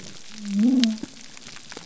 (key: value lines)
label: biophony
recorder: SoundTrap 300